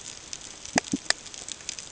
{"label": "ambient", "recorder": "HydroMoth"}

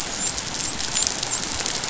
{"label": "biophony, dolphin", "recorder": "SoundTrap 500"}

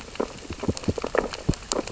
{"label": "biophony, sea urchins (Echinidae)", "recorder": "SoundTrap 600 or HydroMoth"}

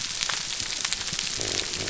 {"label": "biophony", "recorder": "SoundTrap 300"}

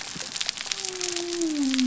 {"label": "biophony", "recorder": "SoundTrap 300"}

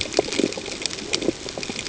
{"label": "ambient", "recorder": "HydroMoth"}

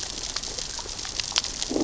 {"label": "biophony, growl", "recorder": "SoundTrap 600 or HydroMoth"}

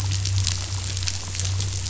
{"label": "anthrophony, boat engine", "recorder": "SoundTrap 500"}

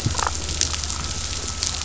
{"label": "anthrophony, boat engine", "recorder": "SoundTrap 500"}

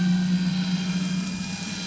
{"label": "anthrophony, boat engine", "recorder": "SoundTrap 500"}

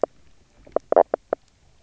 {"label": "biophony, knock croak", "recorder": "SoundTrap 300"}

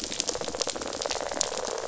{"label": "biophony, rattle response", "recorder": "SoundTrap 500"}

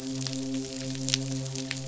{"label": "biophony, midshipman", "recorder": "SoundTrap 500"}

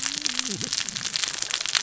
{"label": "biophony, cascading saw", "recorder": "SoundTrap 600 or HydroMoth"}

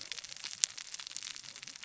{"label": "biophony, cascading saw", "recorder": "SoundTrap 600 or HydroMoth"}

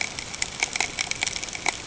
{"label": "ambient", "recorder": "HydroMoth"}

